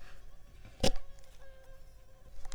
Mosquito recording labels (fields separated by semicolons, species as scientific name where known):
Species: Culex pipiens complex; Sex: female; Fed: unfed; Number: one; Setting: cup